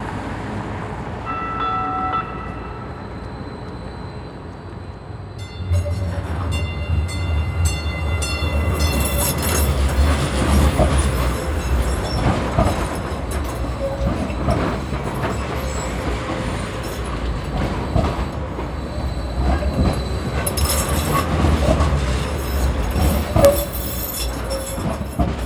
Do people talk?
no